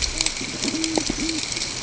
{"label": "ambient", "recorder": "HydroMoth"}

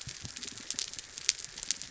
{"label": "biophony", "recorder": "SoundTrap 300"}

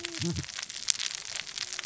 {"label": "biophony, cascading saw", "recorder": "SoundTrap 600 or HydroMoth"}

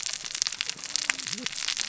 {"label": "biophony, cascading saw", "recorder": "SoundTrap 600 or HydroMoth"}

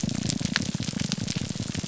{"label": "biophony, grouper groan", "recorder": "SoundTrap 300"}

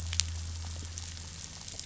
{"label": "anthrophony, boat engine", "recorder": "SoundTrap 500"}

